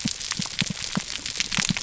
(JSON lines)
{"label": "biophony, pulse", "recorder": "SoundTrap 300"}